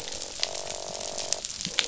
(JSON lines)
{"label": "biophony, croak", "recorder": "SoundTrap 500"}